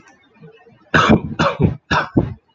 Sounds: Cough